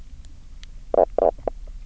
{"label": "biophony, knock croak", "recorder": "SoundTrap 300"}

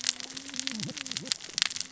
{"label": "biophony, cascading saw", "recorder": "SoundTrap 600 or HydroMoth"}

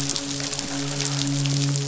{"label": "biophony, midshipman", "recorder": "SoundTrap 500"}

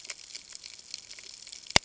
{"label": "ambient", "recorder": "HydroMoth"}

